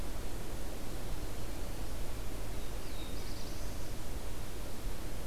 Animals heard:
Black-throated Blue Warbler (Setophaga caerulescens)

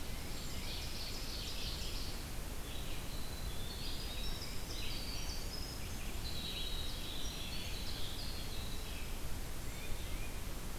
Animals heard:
Tufted Titmouse (Baeolophus bicolor), Ovenbird (Seiurus aurocapilla), Winter Wren (Troglodytes hiemalis), Red-eyed Vireo (Vireo olivaceus)

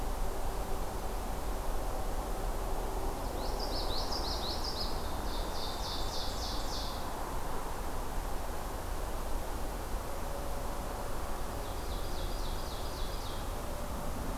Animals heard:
Common Yellowthroat (Geothlypis trichas), Ovenbird (Seiurus aurocapilla)

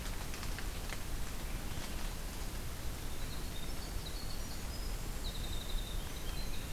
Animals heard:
Golden-crowned Kinglet (Regulus satrapa), Winter Wren (Troglodytes hiemalis)

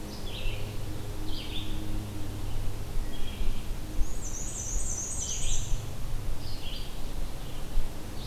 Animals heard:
Black-and-white Warbler (Mniotilta varia), Red-eyed Vireo (Vireo olivaceus)

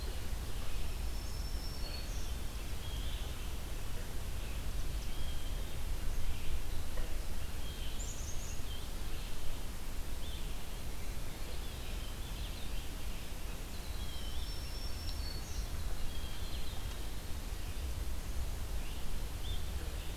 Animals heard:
Black-throated Green Warbler (Setophaga virens), Winter Wren (Troglodytes hiemalis), Blue Jay (Cyanocitta cristata), Red-eyed Vireo (Vireo olivaceus), Black-capped Chickadee (Poecile atricapillus)

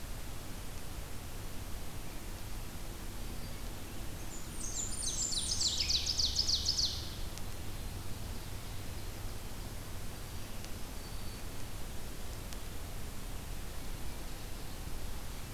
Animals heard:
Blackburnian Warbler (Setophaga fusca), Red-eyed Vireo (Vireo olivaceus), Ovenbird (Seiurus aurocapilla), Black-throated Green Warbler (Setophaga virens)

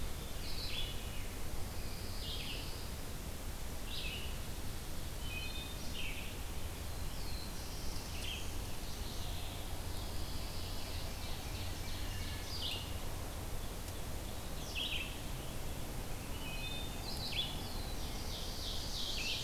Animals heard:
Pine Warbler (Setophaga pinus), Wood Thrush (Hylocichla mustelina), Ovenbird (Seiurus aurocapilla), Red-eyed Vireo (Vireo olivaceus), Black-throated Blue Warbler (Setophaga caerulescens)

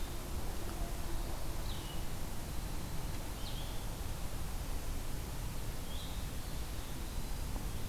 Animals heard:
Red-eyed Vireo (Vireo olivaceus), Eastern Wood-Pewee (Contopus virens)

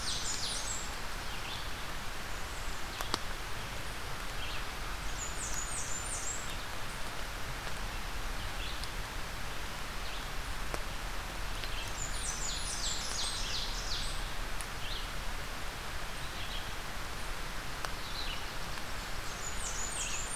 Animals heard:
Red-eyed Vireo (Vireo olivaceus), Blackburnian Warbler (Setophaga fusca), Ovenbird (Seiurus aurocapilla)

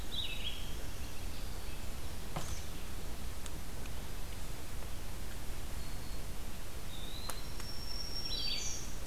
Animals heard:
Red-eyed Vireo (Vireo olivaceus), Black-throated Green Warbler (Setophaga virens), Eastern Wood-Pewee (Contopus virens)

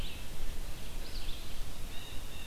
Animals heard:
Red-eyed Vireo (Vireo olivaceus), Blue Jay (Cyanocitta cristata)

